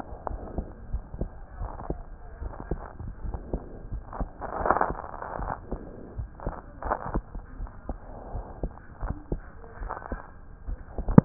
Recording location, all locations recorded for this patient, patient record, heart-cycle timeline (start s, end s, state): aortic valve (AV)
aortic valve (AV)+pulmonary valve (PV)+tricuspid valve (TV)+mitral valve (MV)
#Age: Child
#Sex: Male
#Height: 117.0 cm
#Weight: 23.1 kg
#Pregnancy status: False
#Murmur: Absent
#Murmur locations: nan
#Most audible location: nan
#Systolic murmur timing: nan
#Systolic murmur shape: nan
#Systolic murmur grading: nan
#Systolic murmur pitch: nan
#Systolic murmur quality: nan
#Diastolic murmur timing: nan
#Diastolic murmur shape: nan
#Diastolic murmur grading: nan
#Diastolic murmur pitch: nan
#Diastolic murmur quality: nan
#Outcome: Normal
#Campaign: 2015 screening campaign
0.00	0.88	unannotated
0.88	1.04	S1
1.04	1.17	systole
1.17	1.30	S2
1.30	1.57	diastole
1.57	1.72	S1
1.72	1.86	systole
1.86	2.00	S2
2.00	2.39	diastole
2.39	2.52	S1
2.52	2.69	systole
2.69	2.82	S2
2.82	3.17	diastole
3.17	3.36	S1
3.36	3.49	systole
3.49	3.62	S2
3.62	3.88	diastole
3.88	4.04	S1
4.04	4.17	systole
4.17	4.30	S2
4.30	5.33	unannotated
5.33	5.52	S1
5.52	5.67	systole
5.67	5.82	S2
5.82	6.13	diastole
6.13	6.29	S1
6.29	6.43	systole
6.43	6.56	S2
6.56	6.81	diastole
6.81	6.96	S1
6.96	7.09	systole
7.09	7.24	S2
7.24	7.54	diastole
7.54	7.70	S1
7.70	7.84	systole
7.84	7.98	S2
7.98	8.30	diastole
8.30	8.46	S1
8.46	8.59	systole
8.59	8.74	S2
8.74	8.99	diastole
8.99	9.16	S1
9.16	9.27	systole
9.27	9.42	S2
9.42	9.75	diastole
9.75	9.92	S1
9.92	10.07	systole
10.07	10.20	S2
10.20	10.62	diastole
10.62	10.80	S1
10.80	11.25	unannotated